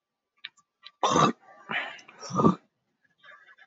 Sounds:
Throat clearing